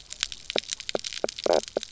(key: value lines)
label: biophony, knock croak
recorder: SoundTrap 300